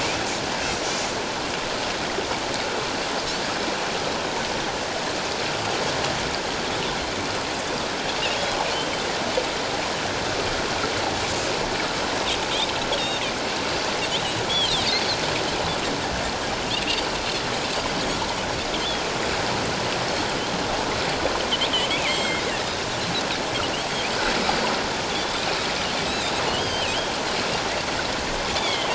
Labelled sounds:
0.6	1.0	Pacific white-sided dolphin, 5.6 to 6.2 kHz
8.7	9.0	Pacific white-sided dolphin, 2.9 to 3.2 kHz
14.5	14.9	Pacific white-sided dolphin, 2.8 to 4.6 kHz
16.9	17.2	Pacific white-sided dolphin, 4.3 to 4.8 kHz
21.7	22.4	Pacific white-sided dolphin, 2.0 to 7.7 kHz
26.0	27.0	Pacific white-sided dolphin, 2.3 to 4.1 kHz

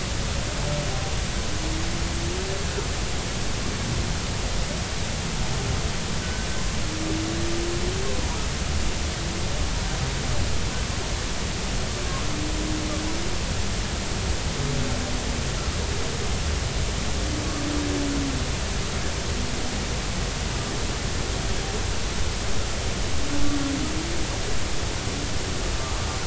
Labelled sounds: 6.2	6.5	humpback whale, 1.5 to 1.6 kHz

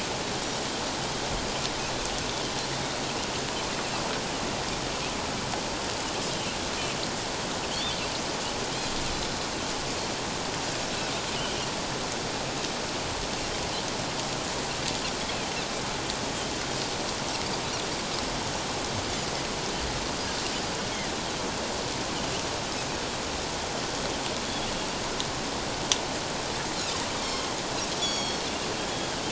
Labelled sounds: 6.3	6.6	Pacific white-sided dolphin, 2.6 to 3.2 kHz
7.7	8.0	Pacific white-sided dolphin, 2.9 to 3.7 kHz
27.9	28.4	Pacific white-sided dolphin, 3.2 to 6.9 kHz

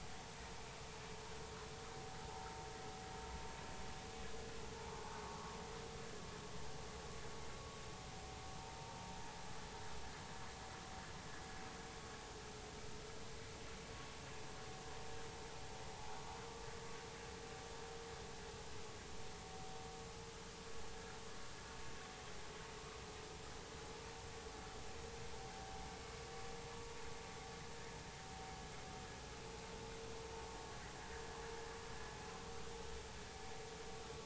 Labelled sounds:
4.9	5.6	vessel noise, 1.0 to 1.3 kHz
15.9	16.2	vessel noise, 0.80 to 0.90 kHz

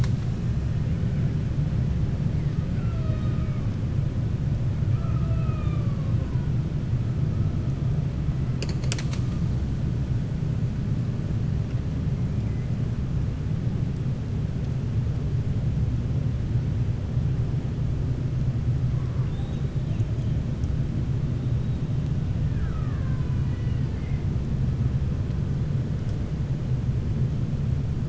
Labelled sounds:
2.7	3.6	killer whale, 0.61 to 4.4 kHz
19.2	19.7	killer whale, 2.7 to 3.9 kHz

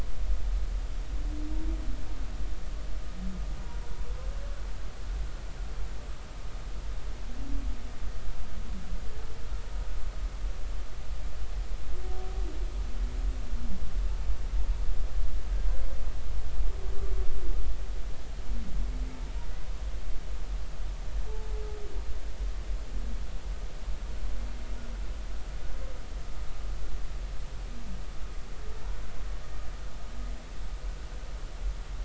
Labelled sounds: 21.3	21.5	humpback whale, 0.83 to 0.90 kHz

